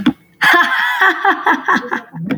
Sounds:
Laughter